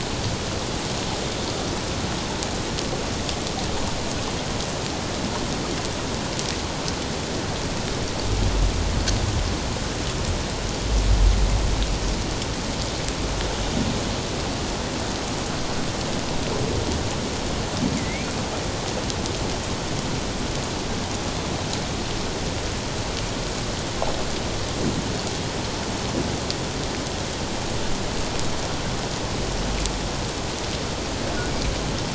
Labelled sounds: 18.0	18.3	humpback whale, 1.9 to 2.5 kHz

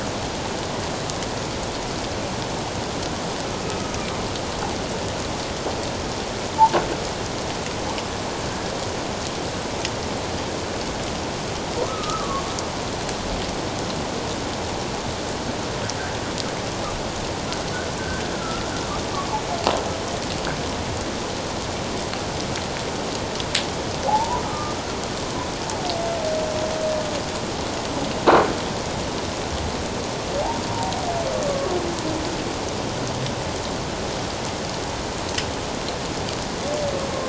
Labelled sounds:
11.9	12.4	humpback whale, 1.0 to 1.4 kHz
18.4	18.6	humpback whale, 1.2 to 1.4 kHz
24.1	24.8	humpback whale, 0.78 to 1.3 kHz

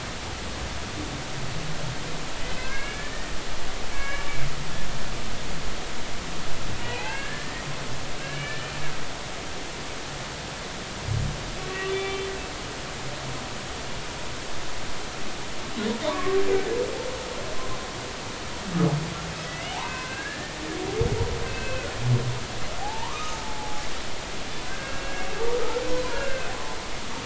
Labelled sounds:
2.6	4.3	humpback whale, 1.1 to 2.9 kHz
6.8	7.7	humpback whale, 0.80 to 2.8 kHz
8.2	8.7	humpback whale, 1.6 to 2.4 kHz
11.6	12.2	humpback whale, 2.3 to 3.6 kHz
16.0	16.4	humpback whale, 0.86 to 1.2 kHz
19.5	20.6	humpback whale, 1.5 to 3.1 kHz
21.5	21.9	humpback whale, 2.4 to 2.7 kHz
22.8	23.8	humpback whale, 0.80 to 1.3 kHz
24.6	25.1	humpback whale, 1.4 to 2.8 kHz
26.1	26.5	humpback whale, 1.5 to 2.8 kHz

